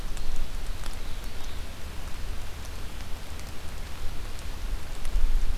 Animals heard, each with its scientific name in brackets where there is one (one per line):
Ovenbird (Seiurus aurocapilla)